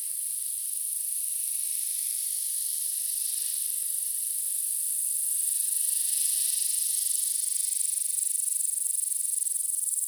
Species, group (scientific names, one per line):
Tettigonia caudata
Orthoptera